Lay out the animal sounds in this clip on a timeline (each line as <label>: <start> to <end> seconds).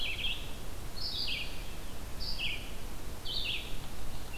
Red-eyed Vireo (Vireo olivaceus): 0.0 to 3.9 seconds